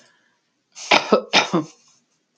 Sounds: Cough